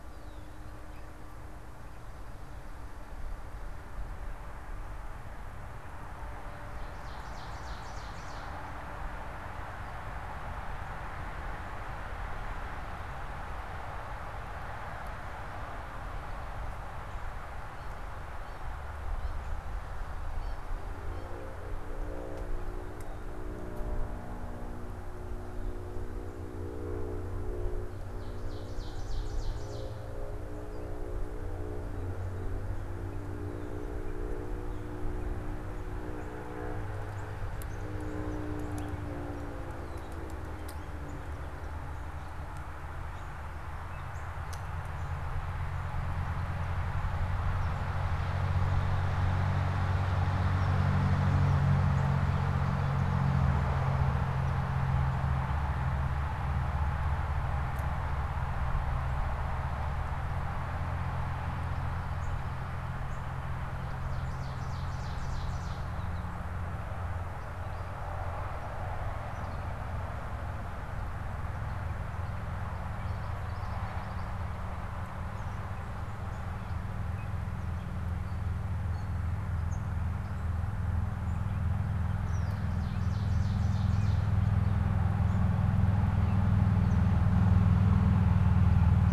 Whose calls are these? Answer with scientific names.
Dumetella carolinensis, Seiurus aurocapilla, unidentified bird, Geothlypis trichas